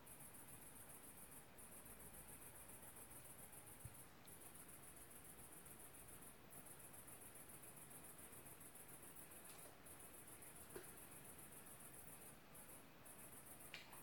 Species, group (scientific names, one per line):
Tettigonia viridissima
Orthoptera